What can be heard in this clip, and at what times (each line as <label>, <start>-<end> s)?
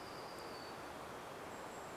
Golden-crowned Kinglet call, 0-2 s
warbler song, 0-2 s